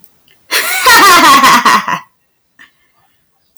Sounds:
Laughter